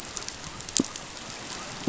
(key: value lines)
label: biophony
recorder: SoundTrap 500